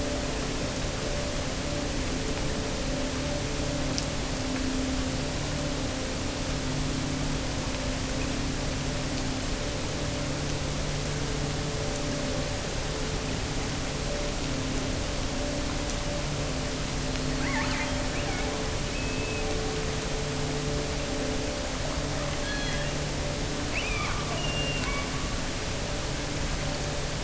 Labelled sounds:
17.3	19.5	killer whale, offshore, 0.73 to 3.4 kHz
22.3	23.0	killer whale, offshore, 1.5 to 4.4 kHz
23.7	25.5	killer whale, offshore, 0.89 to 6.0 kHz

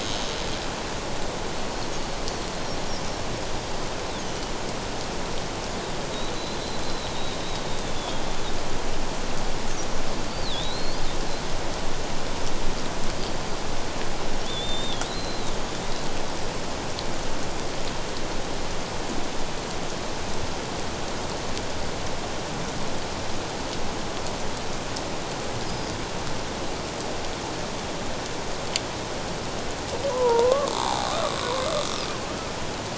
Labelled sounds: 4.2	4.5	killer whale, Bigg's (transient), 2.9 to 3.1 kHz
6.8	7.1	killer whale, Bigg's (transient), 3.8 to 4.1 kHz
8.0	8.2	killer whale, Bigg's (transient), 3.2 to 3.6 kHz
10.3	11.1	killer whale, Bigg's (transient), 3.3 to 5.0 kHz
14.4	15.5	killer whale, Bigg's (transient), 3.2 to 7.4 kHz
25.6	25.9	killer whale, Bigg's (transient), 4.9 to 5.1 kHz
30.1	30.7	killer whale, Bigg's (transient), 0.84 to 1.2 kHz

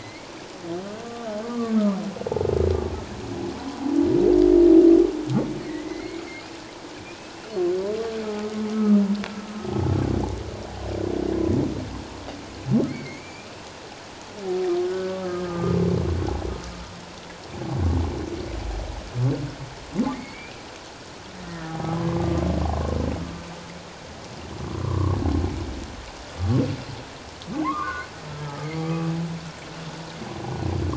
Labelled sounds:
1.4	2.0	humpback whale, 1.1 to 1.3 kHz
5.6	6.2	humpback whale, 1.8 to 2.3 kHz
7.0	9.0	humpback whale, 1.2 to 2.6 kHz
12.9	13.5	humpback whale, 2.0 to 2.6 kHz
14.8	15.8	humpback whale, 1.2 to 1.7 kHz
20.1	20.6	humpback whale, 2.0 to 2.7 kHz
21.5	22.4	humpback whale, 0.97 to 1.9 kHz
24.8	25.2	humpback whale, 0.94 to 1.2 kHz
27.6	28.7	humpback whale, 0.91 to 1.6 kHz

